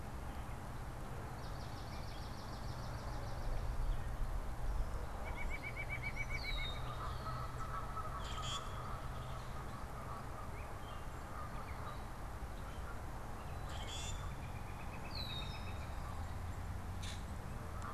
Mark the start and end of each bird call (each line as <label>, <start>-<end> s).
Swamp Sparrow (Melospiza georgiana), 1.1-3.9 s
White-breasted Nuthatch (Sitta carolinensis), 5.1-6.9 s
Red-winged Blackbird (Agelaius phoeniceus), 6.1-7.2 s
Common Grackle (Quiscalus quiscula), 8.1-8.9 s
Common Grackle (Quiscalus quiscula), 13.6-14.4 s
Northern Flicker (Colaptes auratus), 13.7-16.0 s
Red-winged Blackbird (Agelaius phoeniceus), 15.0-15.9 s
Common Grackle (Quiscalus quiscula), 16.9-17.3 s